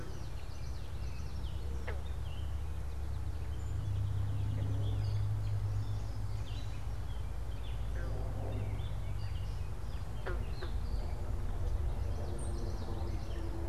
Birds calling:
unidentified bird, Gray Catbird (Dumetella carolinensis), Song Sparrow (Melospiza melodia), Common Yellowthroat (Geothlypis trichas)

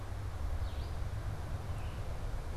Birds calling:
Red-eyed Vireo (Vireo olivaceus), Baltimore Oriole (Icterus galbula)

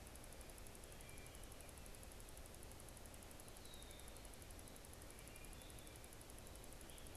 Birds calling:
Red-winged Blackbird (Agelaius phoeniceus), Wood Thrush (Hylocichla mustelina)

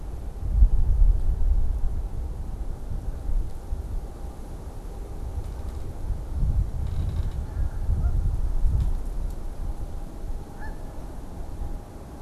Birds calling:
Canada Goose (Branta canadensis)

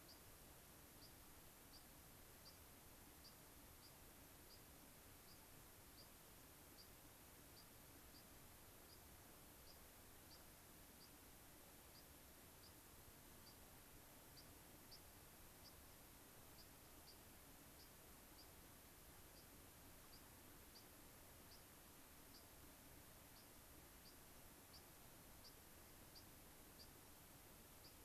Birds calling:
White-crowned Sparrow (Zonotrichia leucophrys)

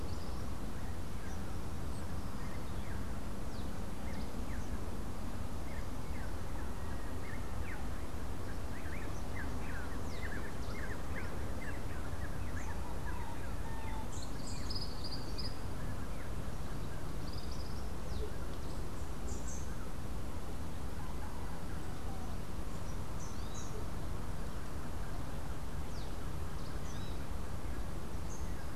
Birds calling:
Tropical Kingbird (Tyrannus melancholicus), Rufous-capped Warbler (Basileuterus rufifrons), Rufous-naped Wren (Campylorhynchus rufinucha)

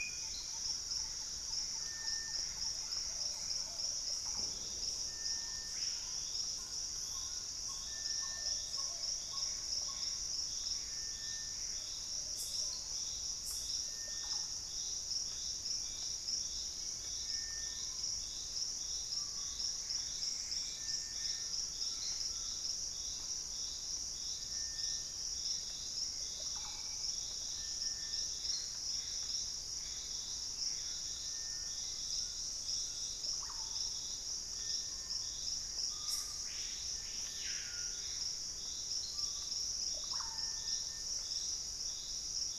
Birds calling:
Hauxwell's Thrush (Turdus hauxwelli), unidentified bird, Purple-throated Fruitcrow (Querula purpurata), Collared Trogon (Trogon collaris), Gray Antbird (Cercomacra cinerascens), Plumbeous Pigeon (Patagioenas plumbea), Screaming Piha (Lipaugus vociferans), Ringed Woodpecker (Celeus torquatus), Russet-backed Oropendola (Psarocolius angustifrons), Thrush-like Wren (Campylorhynchus turdinus)

